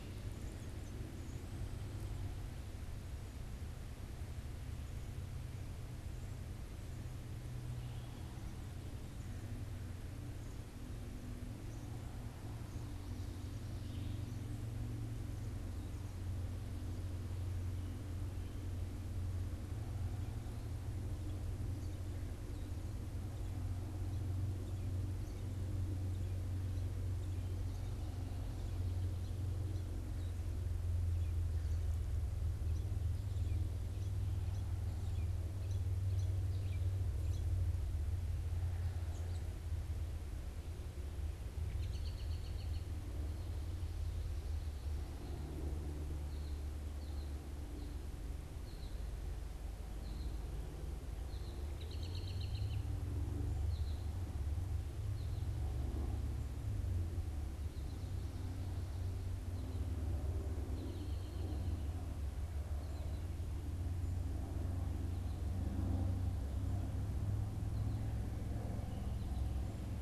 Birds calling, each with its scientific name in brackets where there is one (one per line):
American Goldfinch (Spinus tristis)
unidentified bird
Red-eyed Vireo (Vireo olivaceus)
American Robin (Turdus migratorius)